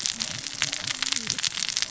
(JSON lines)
{"label": "biophony, cascading saw", "recorder": "SoundTrap 600 or HydroMoth"}